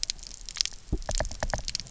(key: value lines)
label: biophony, knock
recorder: SoundTrap 300